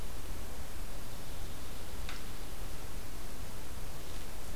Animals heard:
forest ambience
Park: Katahdin Woods and Waters National Monument